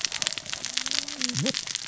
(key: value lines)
label: biophony, cascading saw
recorder: SoundTrap 600 or HydroMoth